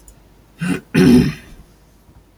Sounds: Throat clearing